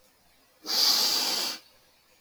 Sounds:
Sniff